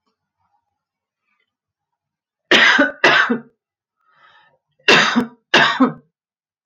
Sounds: Cough